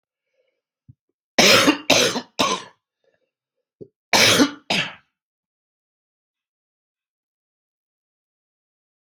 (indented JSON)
{
  "expert_labels": [
    {
      "quality": "ok",
      "cough_type": "dry",
      "dyspnea": false,
      "wheezing": false,
      "stridor": false,
      "choking": false,
      "congestion": false,
      "nothing": true,
      "diagnosis": "COVID-19",
      "severity": "mild"
    }
  ],
  "age": 35,
  "gender": "male",
  "respiratory_condition": false,
  "fever_muscle_pain": false,
  "status": "symptomatic"
}